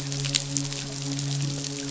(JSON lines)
{"label": "biophony, midshipman", "recorder": "SoundTrap 500"}